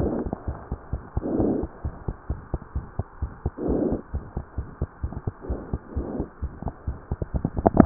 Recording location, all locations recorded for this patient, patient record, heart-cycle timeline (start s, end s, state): pulmonary valve (PV)
aortic valve (AV)+pulmonary valve (PV)+tricuspid valve (TV)+mitral valve (MV)
#Age: Child
#Sex: Male
#Height: 91.0 cm
#Weight: 15.0 kg
#Pregnancy status: False
#Murmur: Present
#Murmur locations: aortic valve (AV)+pulmonary valve (PV)
#Most audible location: pulmonary valve (PV)
#Systolic murmur timing: Early-systolic
#Systolic murmur shape: Plateau
#Systolic murmur grading: I/VI
#Systolic murmur pitch: Low
#Systolic murmur quality: Harsh
#Diastolic murmur timing: nan
#Diastolic murmur shape: nan
#Diastolic murmur grading: nan
#Diastolic murmur pitch: nan
#Diastolic murmur quality: nan
#Outcome: Abnormal
#Campaign: 2015 screening campaign
0.00	1.82	unannotated
1.82	1.92	S1
1.92	2.06	systole
2.06	2.16	S2
2.16	2.28	diastole
2.28	2.40	S1
2.40	2.51	systole
2.51	2.60	S2
2.60	2.73	diastole
2.73	2.84	S1
2.84	2.97	systole
2.97	3.06	S2
3.06	3.20	diastole
3.20	3.30	S1
3.30	3.43	systole
3.43	3.54	S2
3.54	4.12	unannotated
4.12	4.24	S1
4.24	4.35	systole
4.35	4.42	S2
4.42	4.55	diastole
4.55	4.66	S1
4.66	4.78	systole
4.78	4.90	S2
4.90	5.01	diastole
5.01	5.12	S1
5.12	5.25	systole
5.25	5.34	S2
5.34	5.47	diastole
5.47	5.60	S1
5.60	5.70	systole
5.70	5.82	S2
5.82	5.94	diastole
5.94	6.05	S1
6.05	6.17	systole
6.17	6.26	S2
6.26	6.41	diastole
6.41	6.52	S1
6.52	6.63	systole
6.63	6.72	S2
6.72	6.85	diastole
6.85	6.96	S1
6.96	7.08	systole
7.08	7.18	S2
7.18	7.86	unannotated